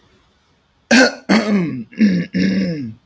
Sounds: Cough